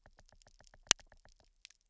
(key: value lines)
label: biophony, knock
recorder: SoundTrap 300